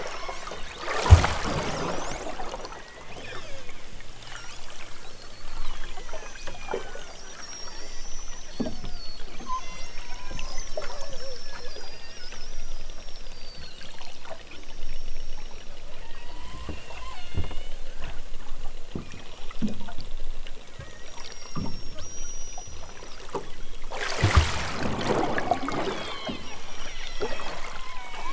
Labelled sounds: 0.0	0.6	killer whale, southern Alaska resident, 0.65 to 3.4 kHz
2.7	3.7	killer whale, southern Alaska resident, 0.32 to 5.5 kHz
5.6	7.3	killer whale, southern Alaska resident, 1.3 to 6.7 kHz
8.4	8.9	killer whale, southern Alaska resident, 1.8 to 4.8 kHz
9.4	10.7	killer whale, southern Alaska resident, 0.65 to 6.6 kHz
11.8	12.6	killer whale, southern Alaska resident, 0.97 to 5.4 kHz
14.5	17.9	killer whale, southern Alaska resident, 0.69 to 6.6 kHz
20.8	23.1	killer whale, southern Alaska resident, 1.4 to 6.9 kHz
25.3	28.3	killer whale, southern Alaska resident, 0.69 to 7.1 kHz

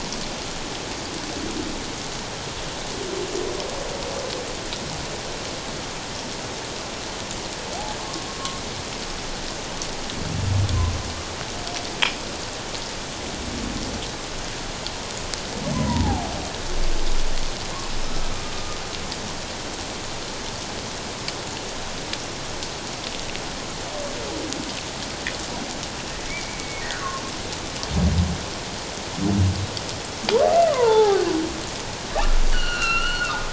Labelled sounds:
8.0	8.3	humpback whale, 0.97 to 1.1 kHz
15.7	16.3	humpback whale, 0.78 to 1.1 kHz
18.5	18.8	humpback whale, 1.1 to 1.3 kHz
26.3	26.8	humpback whale, 2.1 to 2.4 kHz
30.6	31.3	humpback whale, 0.78 to 1.8 kHz
32.5	33.3	humpback whale, 1.2 to 4.5 kHz

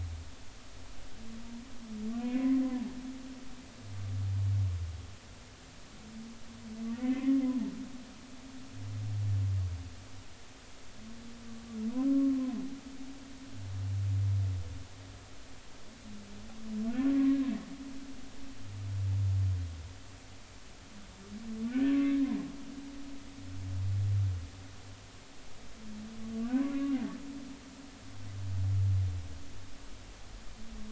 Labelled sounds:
7.2	7.4	humpback whale, 0.99 to 1.1 kHz
7.9	8.4	humpback whale, 1.7 to 2.2 kHz
12.1	12.6	humpback whale, 0.99 to 1.2 kHz
17.1	17.4	humpback whale, 1.0 to 1.1 kHz
21.7	22.2	humpback whale, 1.1 to 1.6 kHz
22.9	23.2	humpback whale, 2.0 to 2.3 kHz
26.5	27.0	humpback whale, 0.93 to 2.9 kHz

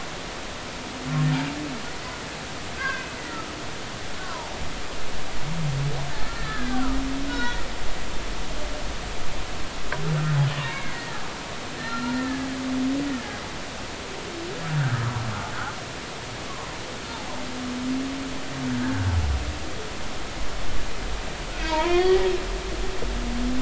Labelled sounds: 2.8	3.5	humpback whale, 1.2 to 2.7 kHz
4.2	4.5	humpback whale, 0.80 to 1.2 kHz
6.2	7.6	humpback whale, 0.90 to 3.9 kHz
10.6	11.3	humpback whale, 0.96 to 2.4 kHz
11.8	12.5	humpback whale, 1.2 to 4.3 kHz
14.7	15.0	humpback whale, 1.2 to 1.8 kHz
18.8	19.1	humpback whale, 1.4 to 1.7 kHz
21.6	22.3	humpback whale, 0.86 to 3.4 kHz

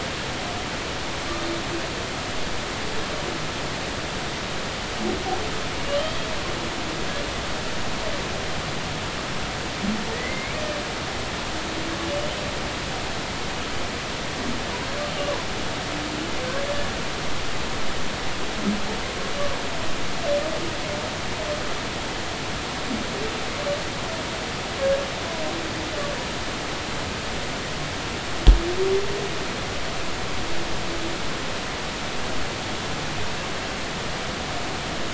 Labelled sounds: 6.0	6.3	humpback whale, 3.1 to 3.3 kHz
10.1	10.6	humpback whale, 1.8 to 2.4 kHz
12.0	12.3	humpback whale, 2.8 to 3.0 kHz

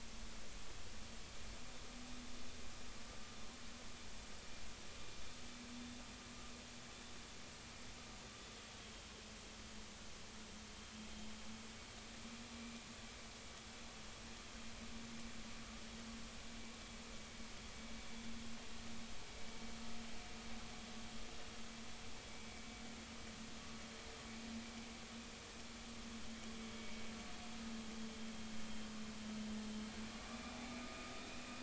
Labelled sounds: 30.3	31.1	vessel noise, 1.2 to 2.6 kHz

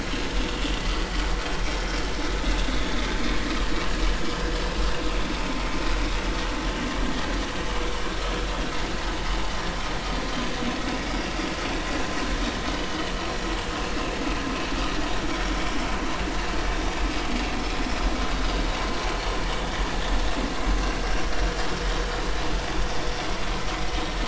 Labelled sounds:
12.7	13.0	vessel noise, 2.9 to 3.1 kHz

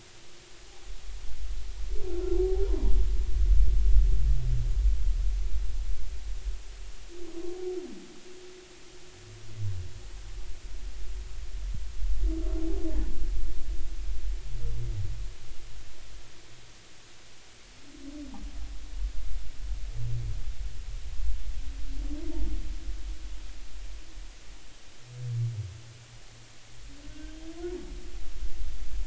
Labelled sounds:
2.6	3.0	humpback whale, 0.86 to 1.1 kHz
27.1	27.5	humpback whale, 1.5 to 3.2 kHz

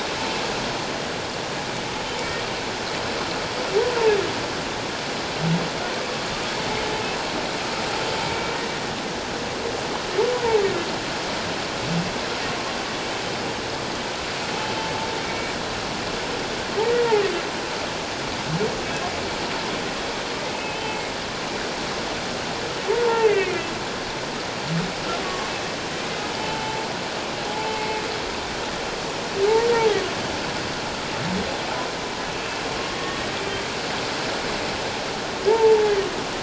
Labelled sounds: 8.3	8.6	humpback whale, 2.2 to 2.3 kHz
15.3	15.5	humpback whale, 2.2 to 2.5 kHz
20.5	21.1	humpback whale, 2.1 to 2.7 kHz
23.0	23.7	humpback whale, 0.84 to 2.9 kHz
25.2	25.5	humpback whale, 1.0 to 1.2 kHz
26.4	26.8	humpback whale, 0.84 to 3.1 kHz
27.5	28.0	humpback whale, 0.78 to 2.2 kHz
32.9	33.2	humpback whale, 1.8 to 1.9 kHz
35.5	35.8	humpback whale, 0.81 to 1.0 kHz

